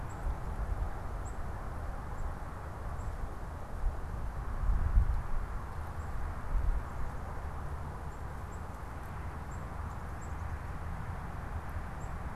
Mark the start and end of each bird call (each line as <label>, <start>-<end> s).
Black-capped Chickadee (Poecile atricapillus), 0.0-12.4 s